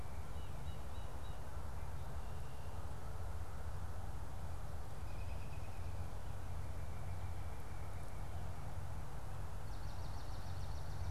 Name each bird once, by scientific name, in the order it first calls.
Cyanocitta cristata, unidentified bird, Melospiza georgiana